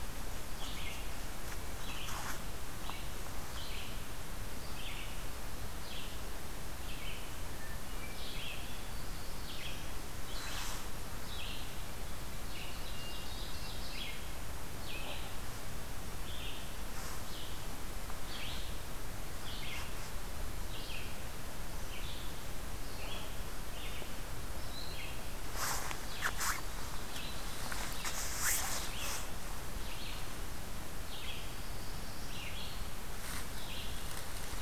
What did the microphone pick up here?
Red-eyed Vireo, Hermit Thrush, Black-throated Blue Warbler, Ovenbird